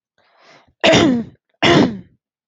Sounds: Throat clearing